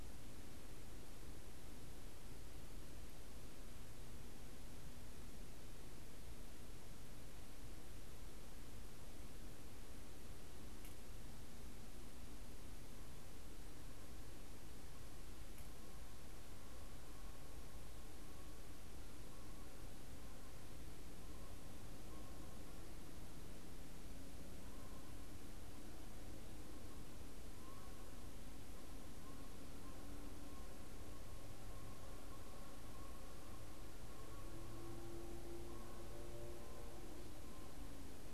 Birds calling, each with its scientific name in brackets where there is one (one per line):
Canada Goose (Branta canadensis)